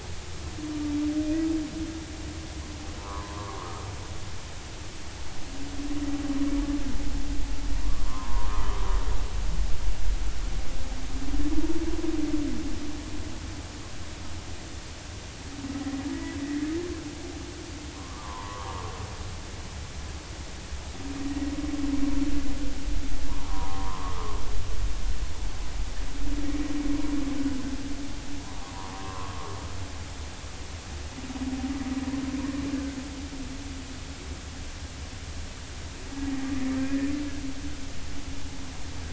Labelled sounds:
3.0	3.8	humpback whale, 0.86 to 1.3 kHz
7.9	8.8	humpback whale, 0.90 to 1.3 kHz
16.1	16.4	humpback whale, 1.9 to 2.0 kHz
18.0	18.8	humpback whale, 0.86 to 1.3 kHz
21.3	21.5	humpback whale, 1.8 to 2.0 kHz
23.4	24.4	humpback whale, 0.80 to 1.3 kHz
28.6	29.5	humpback whale, 0.93 to 1.4 kHz
36.8	37.1	humpback whale, 1.5 to 1.9 kHz

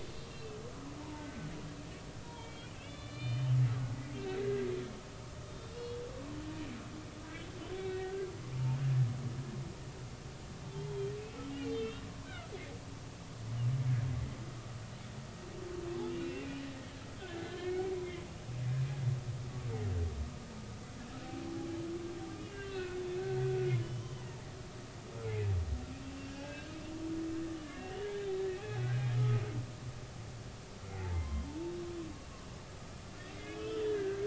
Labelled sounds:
0.3	0.6	humpback whale, 2.5 to 2.8 kHz
1.0	1.5	humpback whale, 0.86 to 1.6 kHz
2.3	3.6	humpback whale, 1.7 to 4.8 kHz
4.4	4.7	humpback whale, 1.6 to 2.0 kHz
5.5	6.0	humpback whale, 2.7 to 3.7 kHz
7.8	8.3	humpback whale, 1.4 to 2.0 kHz
8.6	8.8	humpback whale, 0.86 to 1.1 kHz
10.6	11.1	humpback whale, 0.83 to 3.3 kHz
11.5	12.5	humpback whale, 1.2 to 3.3 kHz
16.1	17.8	humpback whale, 1.6 to 2.9 kHz
22.4	24.5	humpback whale, 0.80 to 5.8 kHz
26.1	26.7	humpback whale, 1.5 to 2.8 kHz
27.6	28.0	humpback whale, 1.6 to 2.8 kHz
28.6	29.2	humpback whale, 0.80 to 2.6 kHz
30.9	31.7	humpback whale, 0.80 to 3.3 kHz
33.4	34.2	humpback whale, 1.2 to 3.6 kHz

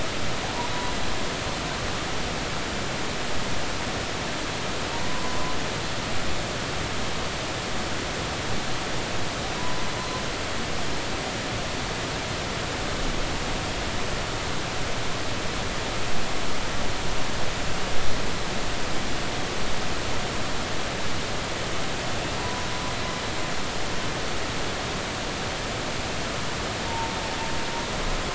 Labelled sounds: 5.1	5.6	humpback whale, 0.96 to 1.1 kHz
22.4	22.7	humpback whale, 0.93 to 1.0 kHz
26.8	27.2	humpback whale, 0.80 to 0.96 kHz

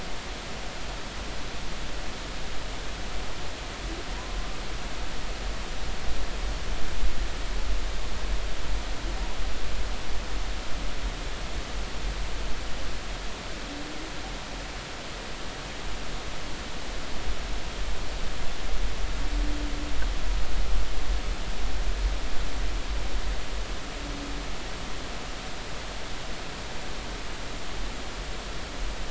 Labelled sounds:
4.1	4.4	humpback whale, 0.90 to 1.1 kHz

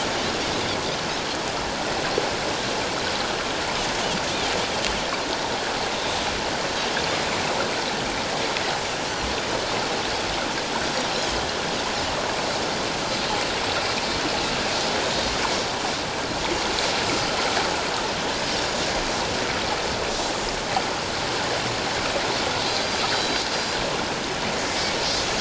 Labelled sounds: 23.1	23.8	Pacific white-sided dolphin, 3.1 to 5.0 kHz

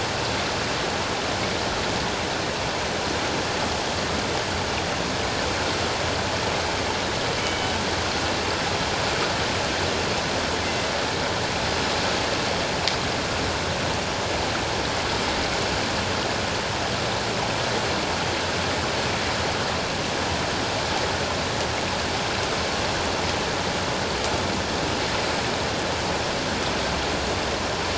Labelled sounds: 7.4	7.7	killer whale, northern resident, G clan, 2.1 to 3.1 kHz

